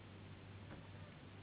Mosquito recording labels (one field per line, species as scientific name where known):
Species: Anopheles gambiae s.s.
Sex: female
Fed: unfed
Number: one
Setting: insect culture